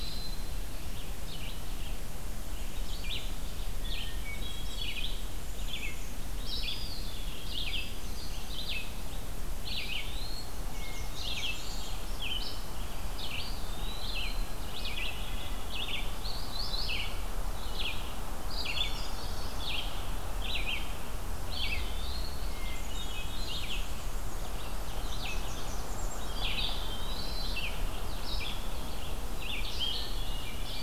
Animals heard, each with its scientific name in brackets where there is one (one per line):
Eastern Wood-Pewee (Contopus virens)
Hermit Thrush (Catharus guttatus)
Red-eyed Vireo (Vireo olivaceus)
Black-and-white Warbler (Mniotilta varia)
Blackburnian Warbler (Setophaga fusca)
Black-capped Chickadee (Poecile atricapillus)